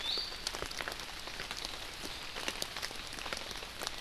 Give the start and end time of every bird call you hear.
0.0s-0.5s: Iiwi (Drepanis coccinea)

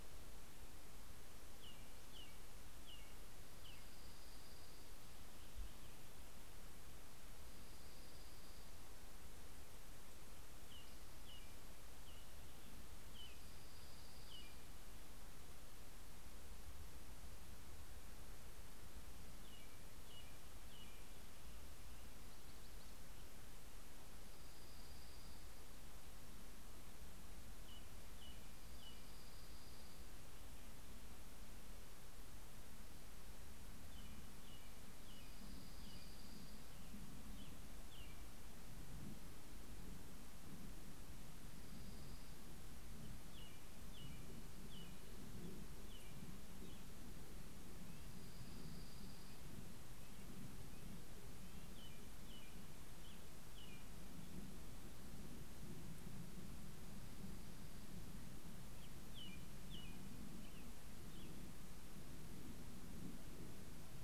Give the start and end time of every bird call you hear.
0.0s-4.5s: American Robin (Turdus migratorius)
2.8s-5.5s: Dark-eyed Junco (Junco hyemalis)
7.2s-9.1s: Dark-eyed Junco (Junco hyemalis)
10.4s-14.7s: American Robin (Turdus migratorius)
12.7s-15.4s: Dark-eyed Junco (Junco hyemalis)
18.8s-21.6s: American Robin (Turdus migratorius)
23.7s-30.6s: Dark-eyed Junco (Junco hyemalis)
27.4s-30.0s: American Robin (Turdus migratorius)
33.6s-39.0s: Dark-eyed Junco (Junco hyemalis)
40.8s-43.1s: Dark-eyed Junco (Junco hyemalis)
42.4s-47.1s: American Robin (Turdus migratorius)
47.5s-49.6s: Dark-eyed Junco (Junco hyemalis)
47.6s-52.1s: Red-breasted Nuthatch (Sitta canadensis)
50.7s-53.8s: Dark-eyed Junco (Junco hyemalis)
58.2s-61.7s: American Robin (Turdus migratorius)

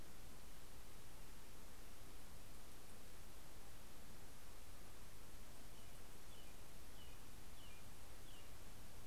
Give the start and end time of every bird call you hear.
5.4s-9.1s: American Robin (Turdus migratorius)

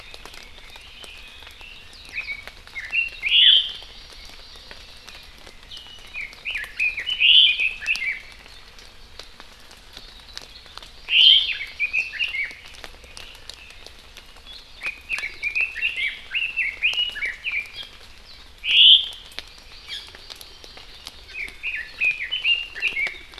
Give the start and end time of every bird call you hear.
0.0s-3.6s: Red-billed Leiothrix (Leiothrix lutea)
3.2s-3.8s: Omao (Myadestes obscurus)
3.7s-5.4s: Hawaii Amakihi (Chlorodrepanis virens)
6.1s-8.2s: Red-billed Leiothrix (Leiothrix lutea)
11.1s-11.6s: Omao (Myadestes obscurus)
11.3s-12.5s: Hawaii Amakihi (Chlorodrepanis virens)
11.3s-12.6s: Red-billed Leiothrix (Leiothrix lutea)
14.8s-18.0s: Red-billed Leiothrix (Leiothrix lutea)
18.6s-19.2s: Omao (Myadestes obscurus)
19.3s-21.3s: Hawaii Amakihi (Chlorodrepanis virens)
21.3s-23.3s: Red-billed Leiothrix (Leiothrix lutea)

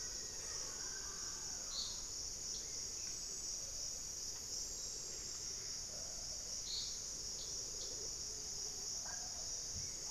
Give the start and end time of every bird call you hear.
0.0s-0.8s: Black-faced Antthrush (Formicarius analis)
0.0s-10.1s: Mealy Parrot (Amazona farinosa)
0.0s-10.1s: White-rumped Sirystes (Sirystes albocinereus)
5.1s-6.0s: unidentified bird

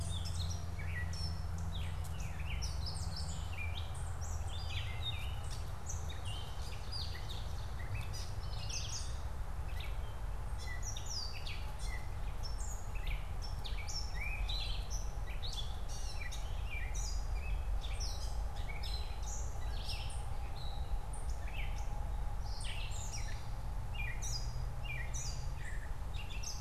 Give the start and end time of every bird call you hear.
0.0s-26.6s: Gray Catbird (Dumetella carolinensis)
5.9s-8.0s: Ovenbird (Seiurus aurocapilla)

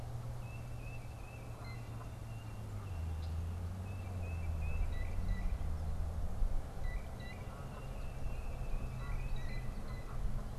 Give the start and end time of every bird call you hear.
0.3s-10.2s: Tufted Titmouse (Baeolophus bicolor)
1.4s-10.2s: Blue Jay (Cyanocitta cristata)

